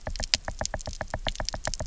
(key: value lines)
label: biophony, knock
recorder: SoundTrap 300